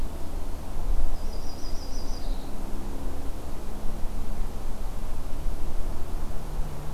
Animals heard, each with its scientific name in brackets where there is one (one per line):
Yellow-rumped Warbler (Setophaga coronata)